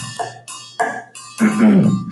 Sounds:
Throat clearing